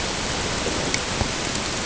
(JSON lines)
{"label": "ambient", "recorder": "HydroMoth"}